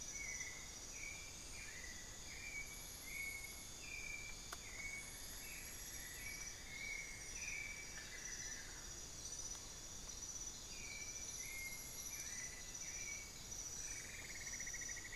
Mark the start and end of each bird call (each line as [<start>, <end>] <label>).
[0.00, 0.69] Bartlett's Tinamou (Crypturellus bartletti)
[0.00, 15.15] White-necked Thrush (Turdus albicollis)
[4.39, 8.59] Cinnamon-throated Woodcreeper (Dendrexetastes rufigula)
[7.69, 9.19] Amazonian Barred-Woodcreeper (Dendrocolaptes certhia)
[13.59, 15.15] Cinnamon-throated Woodcreeper (Dendrexetastes rufigula)